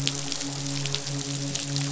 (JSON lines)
{"label": "biophony, midshipman", "recorder": "SoundTrap 500"}